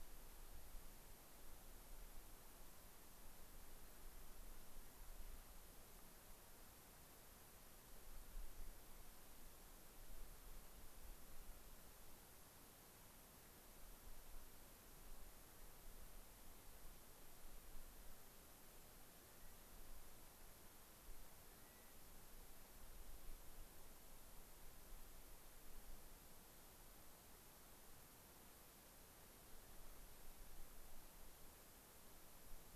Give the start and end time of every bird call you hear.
19.1s-19.8s: Clark's Nutcracker (Nucifraga columbiana)
21.3s-22.0s: Clark's Nutcracker (Nucifraga columbiana)

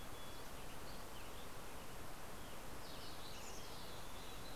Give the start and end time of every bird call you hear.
0.0s-1.6s: Dusky Flycatcher (Empidonax oberholseri)
0.5s-3.2s: Western Tanager (Piranga ludoviciana)
3.1s-4.6s: Mountain Chickadee (Poecile gambeli)

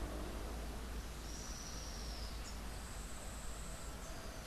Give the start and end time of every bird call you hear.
1.2s-2.5s: Olivaceous Woodcreeper (Sittasomus griseicapillus)

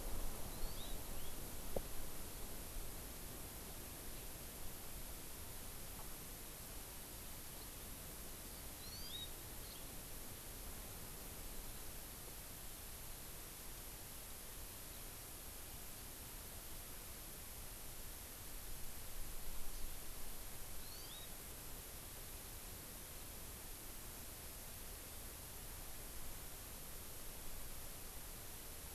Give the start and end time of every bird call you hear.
0.5s-1.0s: Hawaii Amakihi (Chlorodrepanis virens)
1.1s-1.4s: House Finch (Haemorhous mexicanus)
8.8s-9.3s: Hawaii Amakihi (Chlorodrepanis virens)
19.7s-19.9s: Hawaii Amakihi (Chlorodrepanis virens)
20.8s-21.3s: Hawaii Amakihi (Chlorodrepanis virens)

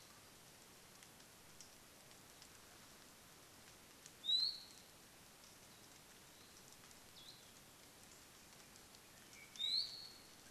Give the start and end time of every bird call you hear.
4.2s-4.7s: Iiwi (Drepanis coccinea)
7.1s-7.5s: Hawaii Akepa (Loxops coccineus)
9.5s-10.5s: Iiwi (Drepanis coccinea)

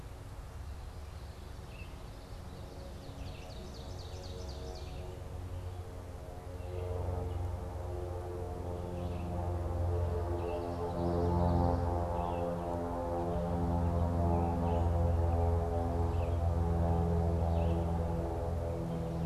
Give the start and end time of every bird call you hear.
1.1s-5.1s: Ovenbird (Seiurus aurocapilla)
1.5s-19.3s: Red-eyed Vireo (Vireo olivaceus)
10.2s-12.1s: Common Yellowthroat (Geothlypis trichas)

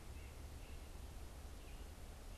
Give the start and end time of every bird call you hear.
0.0s-2.4s: Red-eyed Vireo (Vireo olivaceus)
0.0s-2.4s: White-breasted Nuthatch (Sitta carolinensis)

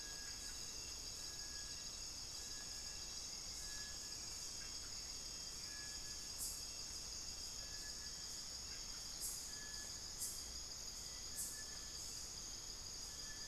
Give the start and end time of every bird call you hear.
0.0s-13.5s: Hauxwell's Thrush (Turdus hauxwelli)
0.0s-13.5s: Little Tinamou (Crypturellus soui)

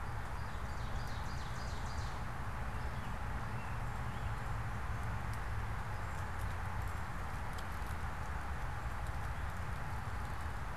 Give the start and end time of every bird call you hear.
0.0s-2.3s: Ovenbird (Seiurus aurocapilla)
2.5s-10.7s: unidentified bird

